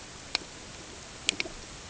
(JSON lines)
{"label": "ambient", "recorder": "HydroMoth"}